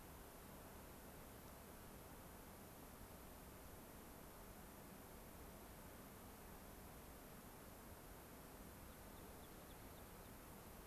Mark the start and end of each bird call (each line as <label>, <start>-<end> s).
American Pipit (Anthus rubescens), 8.8-10.3 s